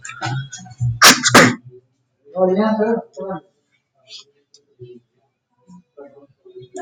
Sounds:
Sneeze